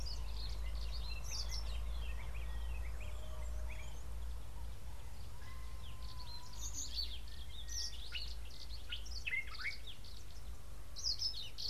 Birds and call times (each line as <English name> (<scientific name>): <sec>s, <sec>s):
Brimstone Canary (Crithagra sulphurata): 7.0s
Common Bulbul (Pycnonotus barbatus): 9.3s